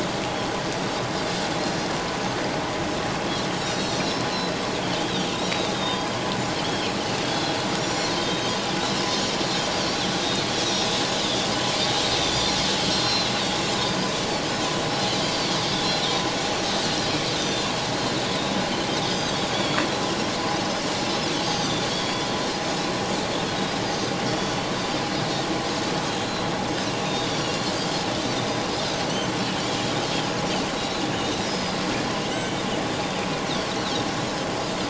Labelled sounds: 3.6	4.6	Pacific white-sided dolphin, 3.9 to 7.3 kHz
4.9	6.2	Pacific white-sided dolphin, 2.9 to 5.0 kHz
6.6	6.9	Pacific white-sided dolphin, 2.9 to 3.6 kHz
7.2	8.6	Pacific white-sided dolphin, 3.0 to 7.3 kHz
9.1	10.0	Pacific white-sided dolphin, 4.2 to 6.4 kHz
12.9	14.1	Pacific white-sided dolphin, 3.8 to 5.6 kHz
15.2	16.2	Pacific white-sided dolphin, 3.2 to 4.8 kHz
17.3	17.7	Pacific white-sided dolphin, 3.5 to 7.3 kHz
18.9	19.8	Pacific white-sided dolphin, 2.1 to 6.2 kHz
21.3	22.3	Pacific white-sided dolphin, 3.0 to 6.5 kHz
23.8	24.6	Pacific white-sided dolphin, 3.2 to 6.4 kHz
26.2	27.6	Pacific white-sided dolphin, 3.6 to 5.8 kHz
29.6	29.9	Pacific white-sided dolphin, 3.2 to 3.5 kHz
31.2	32.6	Pacific white-sided dolphin, 2.0 to 5.2 kHz
33.2	33.4	Pacific white-sided dolphin, 2.3 to 2.6 kHz

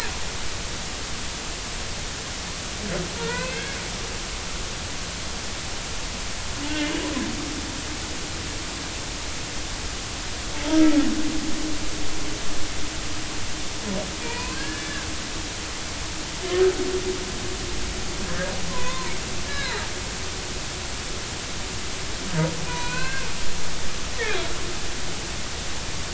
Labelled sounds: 3.2	3.8	humpback whale, 0.90 to 2.7 kHz
6.7	7.0	humpback whale, 2.8 to 3.1 kHz
10.5	11.0	humpback whale, 0.83 to 1.3 kHz
14.2	15.1	humpback whale, 0.90 to 4.5 kHz
18.2	19.1	humpback whale, 0.90 to 1.9 kHz
19.5	19.8	humpback whale, 1.4 to 4.2 kHz
22.7	23.2	humpback whale, 0.93 to 4.3 kHz

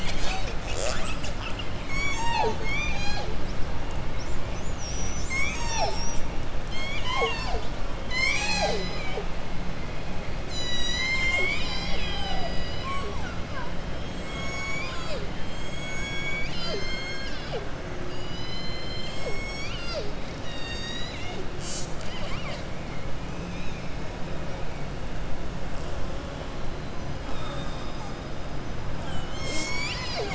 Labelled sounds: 6.6	7.6	killer whale, southern resident, 0.47 to 7.5 kHz
20.3	21.4	killer whale, southern resident, 1.8 to 7.5 kHz
27.2	28.0	killer whale, southern resident, 3.3 to 3.9 kHz

